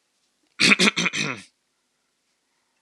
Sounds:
Throat clearing